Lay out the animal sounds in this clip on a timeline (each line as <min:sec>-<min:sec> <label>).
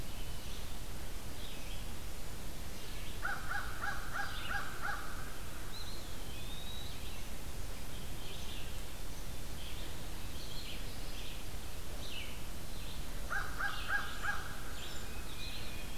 0:00.0-0:04.5 Red-eyed Vireo (Vireo olivaceus)
0:03.0-0:05.4 American Crow (Corvus brachyrhynchos)
0:05.5-0:07.1 Eastern Wood-Pewee (Contopus virens)
0:07.6-0:16.0 Red-eyed Vireo (Vireo olivaceus)
0:12.9-0:14.5 American Crow (Corvus brachyrhynchos)